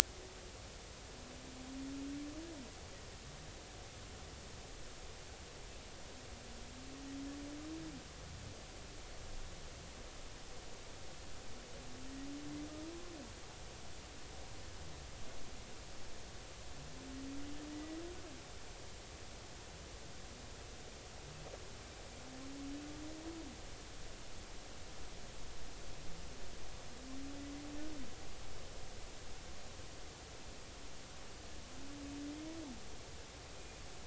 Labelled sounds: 17.7	18.0	killer whale, Bigg's (transient), 1.8 to 2.0 kHz

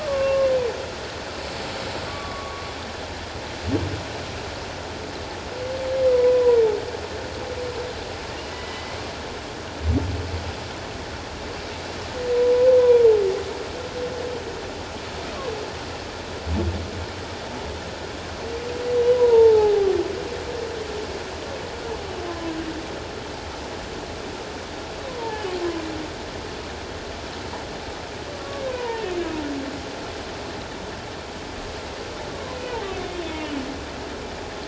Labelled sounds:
0.0	0.5	humpback whale, 1.0 to 1.3 kHz
2.1	2.6	humpback whale, 0.97 to 1.2 kHz
6.1	6.6	humpback whale, 0.88 to 1.0 kHz
8.5	9.0	humpback whale, 1.9 to 2.2 kHz
12.3	13.1	humpback whale, 0.88 to 1.0 kHz
19.0	19.9	humpback whale, 0.78 to 1.0 kHz
25.2	25.5	humpback whale, 0.78 to 0.97 kHz
28.3	29.0	humpback whale, 0.84 to 1.2 kHz

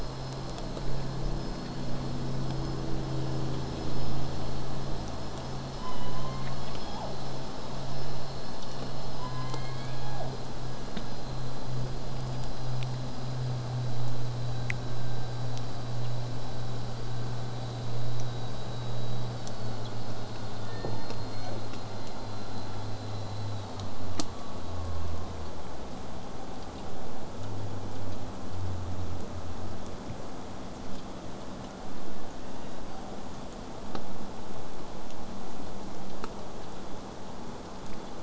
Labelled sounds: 9.2	10.4	killer whale, southern resident, J pod, call S01, 0.19 to 4.8 kHz
20.7	21.6	killer whale, southern resident, J pod, 0.28 to 2.4 kHz

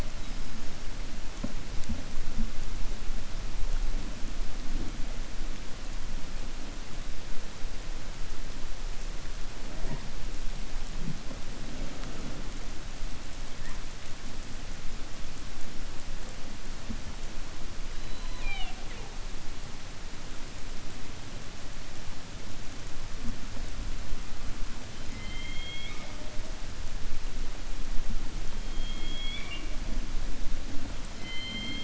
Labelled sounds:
17.9	19.1	killer whale, 0.42 to 4.7 kHz
25.0	26.2	killer whale, 0.61 to 4.4 kHz

